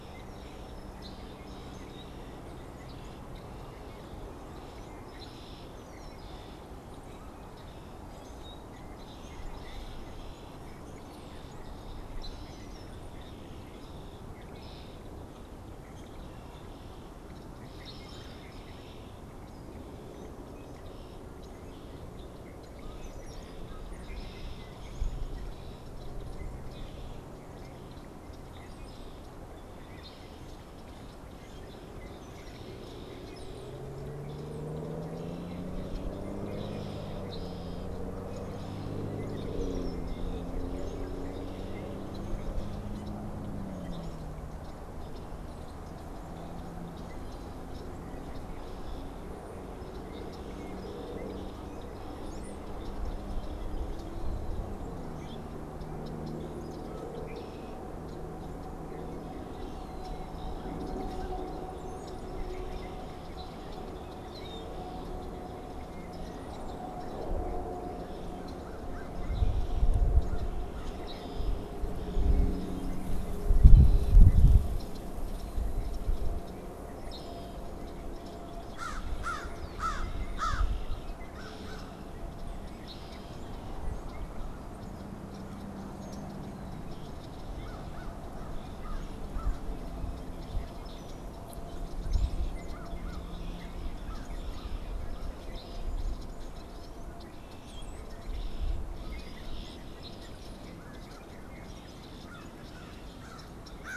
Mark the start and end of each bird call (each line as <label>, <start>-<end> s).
Red-winged Blackbird (Agelaius phoeniceus), 0.0-104.0 s
Red-bellied Woodpecker (Melanerpes carolinus), 17.8-18.6 s
Brown-headed Cowbird (Molothrus ater), 52.1-52.9 s
American Crow (Corvus brachyrhynchos), 68.1-71.5 s
American Crow (Corvus brachyrhynchos), 78.6-82.2 s
American Crow (Corvus brachyrhynchos), 87.5-89.8 s
American Crow (Corvus brachyrhynchos), 92.5-95.7 s
Brown-headed Cowbird (Molothrus ater), 97.6-98.3 s
American Crow (Corvus brachyrhynchos), 101.8-104.0 s